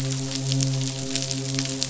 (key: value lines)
label: biophony, midshipman
recorder: SoundTrap 500